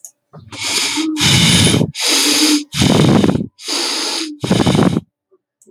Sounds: Sigh